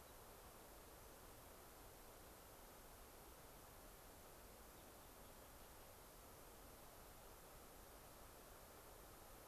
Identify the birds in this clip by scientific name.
unidentified bird, Leucosticte tephrocotis